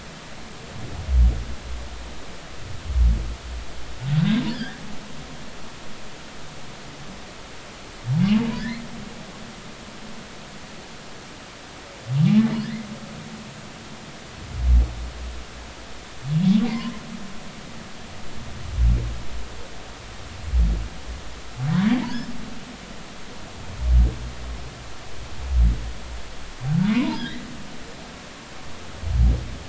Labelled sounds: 4.5	4.8	humpback whale, 1.5 to 1.9 kHz
8.6	8.8	humpback whale, 1.7 to 2.3 kHz
12.6	12.9	humpback whale, 1.6 to 2.2 kHz
26.9	27.4	humpback whale, 0.83 to 2.1 kHz

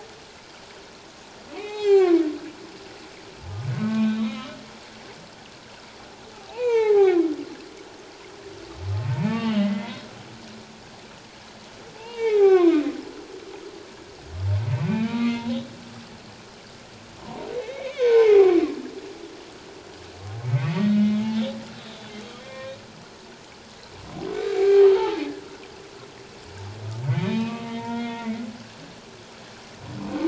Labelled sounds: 1.6	2.2	humpback whale, 0.78 to 6.4 kHz
3.7	4.5	humpback whale, 1.0 to 3.9 kHz
6.3	7.2	humpback whale, 0.78 to 4.0 kHz
9.1	10.0	humpback whale, 0.81 to 3.2 kHz
12.0	12.8	humpback whale, 0.78 to 3.8 kHz
14.8	15.5	humpback whale, 1.1 to 2.6 kHz
17.2	18.6	humpback whale, 0.78 to 3.9 kHz
20.6	22.1	humpback whale, 1.1 to 3.9 kHz
22.4	22.8	humpback whale, 1.0 to 2.4 kHz
24.5	25.2	humpback whale, 0.78 to 2.4 kHz
27.1	28.5	humpback whale, 0.84 to 3.9 kHz

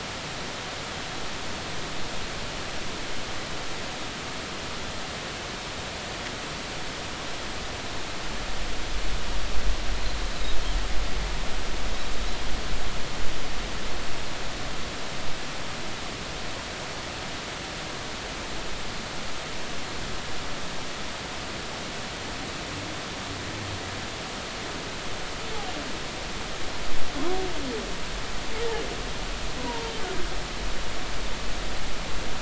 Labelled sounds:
29.6	29.9	humpback whale, 0.86 to 1.1 kHz

